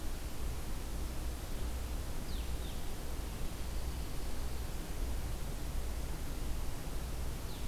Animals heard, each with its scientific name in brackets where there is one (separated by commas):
Blue-headed Vireo (Vireo solitarius)